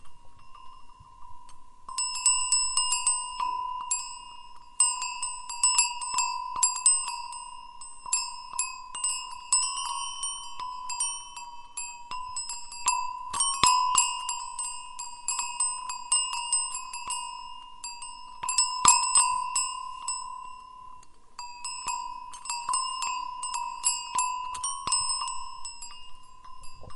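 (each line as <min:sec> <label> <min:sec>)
0:00.0 An animal bell rings quietly. 0:27.0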